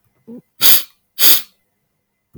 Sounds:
Sniff